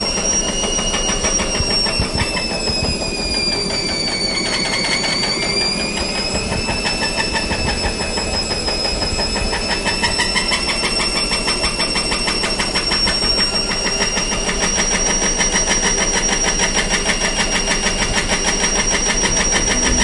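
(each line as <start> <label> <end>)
0.0 A washing machine squeaks during the spin cycle indoors. 20.0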